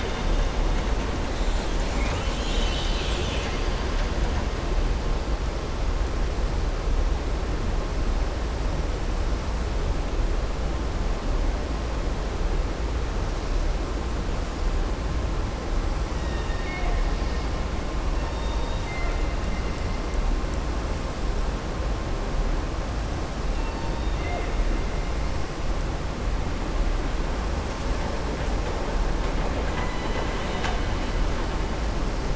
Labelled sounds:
16.1	17.0	killer whale, southern resident, 0.65 to 4.6 kHz
18.2	19.2	killer whale, southern resident, 0.71 to 4.7 kHz
23.5	24.6	killer whale, southern resident, 0.48 to 4.7 kHz

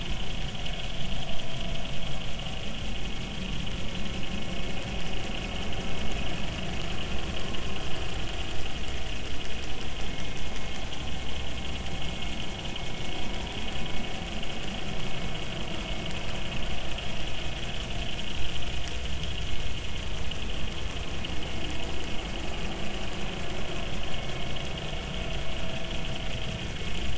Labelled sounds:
10.1	10.4	vessel noise, 2.1 to 2.2 kHz

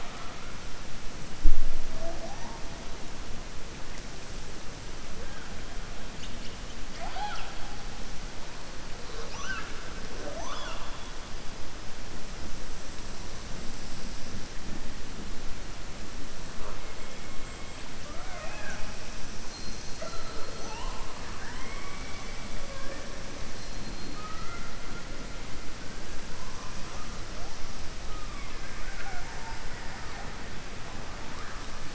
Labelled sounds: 18.0	18.9	killer whale, southern resident, 0.58 to 3.4 kHz

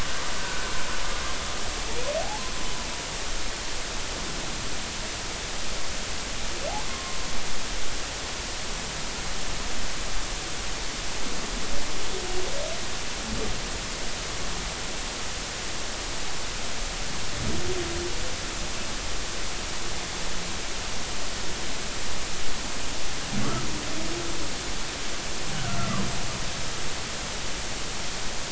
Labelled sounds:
0.4	0.7	humpback whale, 1.4 to 1.6 kHz
6.9	7.2	humpback whale, 1.0 to 1.1 kHz
25.7	26.1	humpback whale, 0.96 to 1.4 kHz

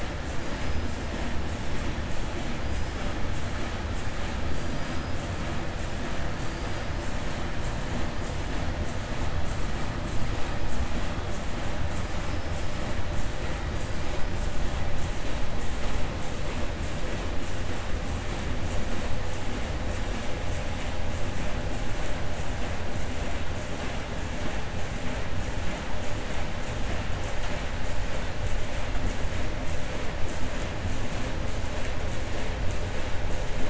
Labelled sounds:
4.5	5.1	killer whale, 4.6 to 5.1 kHz

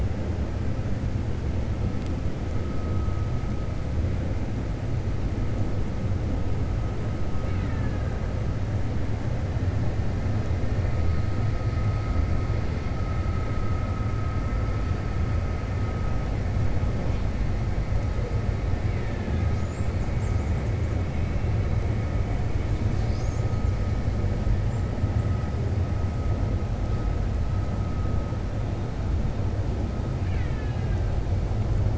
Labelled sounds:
7.4	8.1	killer whale, Bigg's (transient), 0.84 to 3.8 kHz
18.8	19.5	killer whale, Bigg's (transient), 0.88 to 3.7 kHz
30.1	31.0	killer whale, Bigg's (transient), 1.5 to 3.9 kHz

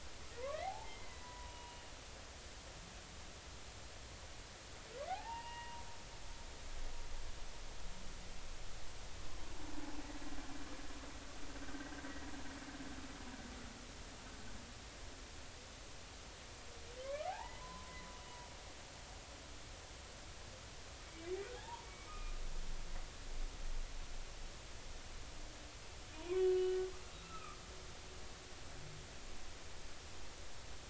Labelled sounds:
0.6	1.8	humpback whale, 0.80 to 3.0 kHz
5.1	5.8	humpback whale, 0.80 to 2.9 kHz
11.7	12.0	humpback whale, 1.5 to 1.7 kHz
17.0	18.1	humpback whale, 0.80 to 2.5 kHz
21.0	22.3	humpback whale, 0.80 to 2.5 kHz
26.2	26.9	humpback whale, 0.90 to 4.1 kHz
27.2	27.6	humpback whale, 1.1 to 2.7 kHz

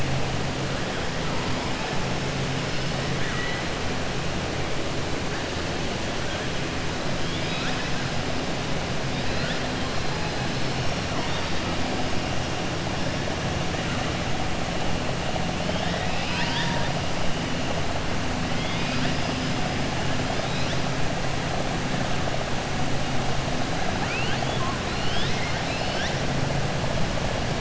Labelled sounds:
3.1	3.6	killer whale, 1.2 to 3.9 kHz
7.2	7.9	killer whale, 1.3 to 5.6 kHz
15.7	16.9	killer whale, 0.94 to 5.3 kHz
23.9	26.2	killer whale, 0.85 to 6.0 kHz

